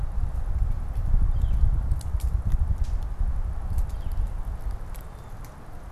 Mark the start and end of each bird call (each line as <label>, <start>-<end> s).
Northern Flicker (Colaptes auratus), 1.2-1.7 s
Northern Flicker (Colaptes auratus), 3.7-4.2 s